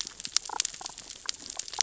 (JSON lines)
{"label": "biophony, damselfish", "recorder": "SoundTrap 600 or HydroMoth"}